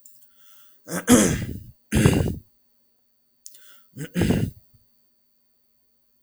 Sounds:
Throat clearing